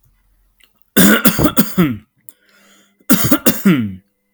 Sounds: Cough